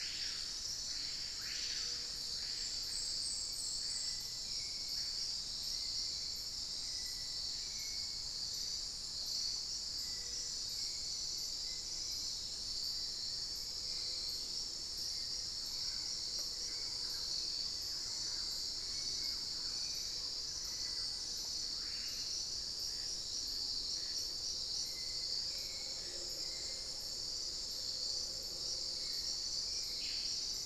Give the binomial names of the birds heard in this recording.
Lipaugus vociferans, Turdus hauxwelli, Campylorhynchus turdinus